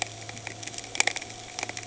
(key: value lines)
label: anthrophony, boat engine
recorder: HydroMoth